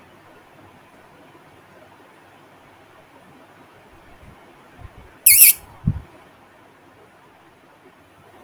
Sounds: Laughter